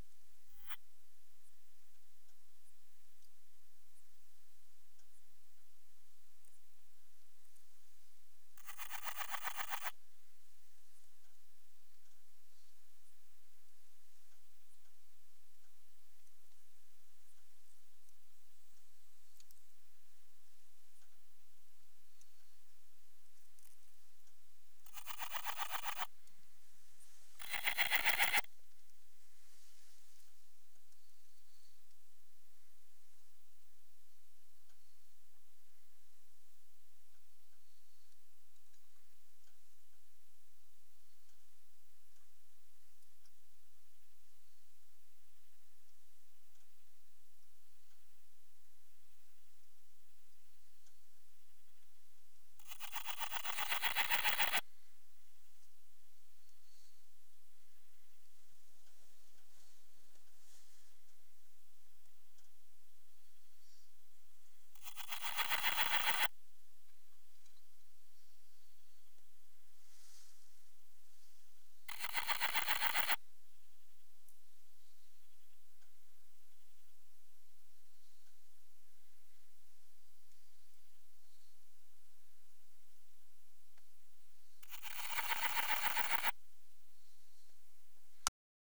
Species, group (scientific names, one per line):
Parnassiana chelmos
Orthoptera